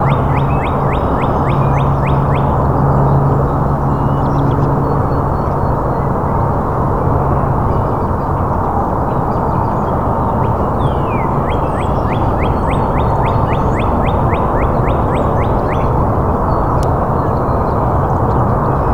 Are their owls hooting?
no